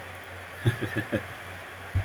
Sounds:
Laughter